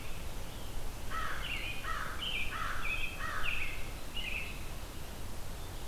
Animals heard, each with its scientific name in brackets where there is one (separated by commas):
American Robin (Turdus migratorius), American Crow (Corvus brachyrhynchos)